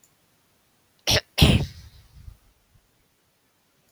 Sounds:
Throat clearing